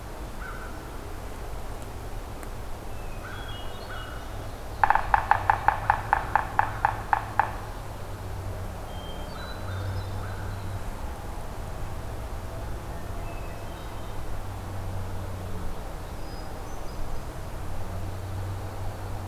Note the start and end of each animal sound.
0.3s-0.7s: American Crow (Corvus brachyrhynchos)
2.9s-4.3s: Hermit Thrush (Catharus guttatus)
3.2s-4.3s: American Crow (Corvus brachyrhynchos)
4.6s-7.7s: Yellow-bellied Sapsucker (Sphyrapicus varius)
8.8s-10.4s: Hermit Thrush (Catharus guttatus)
9.2s-10.8s: American Crow (Corvus brachyrhynchos)
12.8s-14.2s: Hermit Thrush (Catharus guttatus)
16.1s-17.3s: Hermit Thrush (Catharus guttatus)

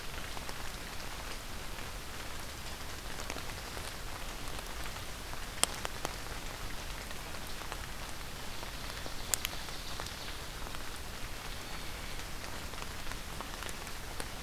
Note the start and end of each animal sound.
8.4s-10.3s: Ovenbird (Seiurus aurocapilla)

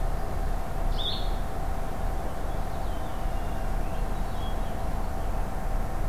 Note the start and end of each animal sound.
0.8s-1.4s: Blue-headed Vireo (Vireo solitarius)
2.4s-5.0s: Purple Finch (Haemorhous purpureus)

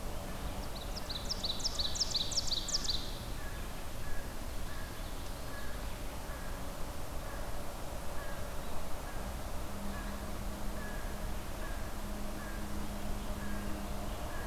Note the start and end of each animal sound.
0.0s-5.2s: American Crow (Corvus brachyrhynchos)
0.4s-3.2s: Ovenbird (Seiurus aurocapilla)
5.4s-14.5s: American Crow (Corvus brachyrhynchos)

